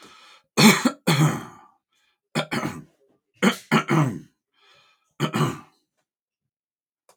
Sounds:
Throat clearing